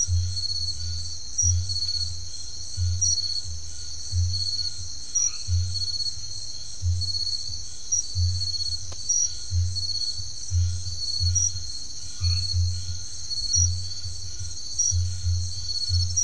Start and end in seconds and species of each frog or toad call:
0.0	16.2	Scinax alter
5.0	5.6	Boana albomarginata
12.1	12.6	Boana albomarginata
Atlantic Forest, Brazil, 10:00pm

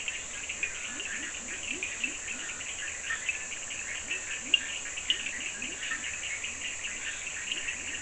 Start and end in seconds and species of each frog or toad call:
0.0	5.3	Sphaenorhynchus surdus
0.0	8.0	Leptodactylus latrans
0.0	8.0	Scinax perereca
2.8	8.0	Boana bischoffi
Atlantic Forest, Brazil, 10:30pm

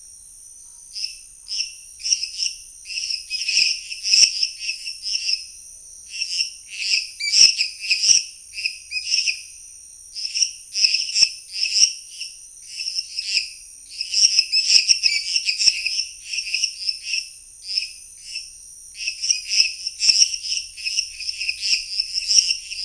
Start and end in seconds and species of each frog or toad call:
0.0	22.8	Dendropsophus minutus
0.5	1.9	Scinax fuscovarius
Cerrado, Brazil, 9:15pm

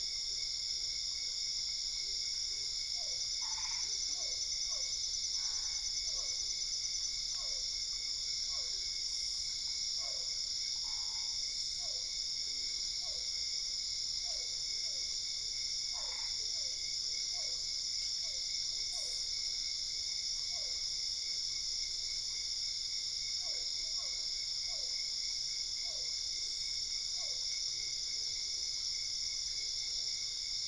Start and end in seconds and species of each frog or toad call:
2.8	20.9	Physalaemus cuvieri
3.3	4.2	Boana albopunctata
5.3	6.0	Boana albopunctata
10.7	11.4	Boana albopunctata
15.8	16.5	Boana albopunctata
23.4	27.5	Physalaemus cuvieri
Cerrado, Brazil, 12:00am

